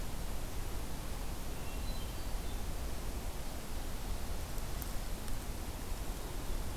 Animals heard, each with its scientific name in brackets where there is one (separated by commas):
Hermit Thrush (Catharus guttatus)